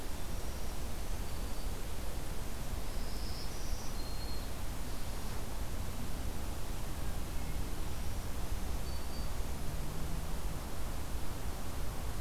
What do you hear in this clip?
Black-throated Green Warbler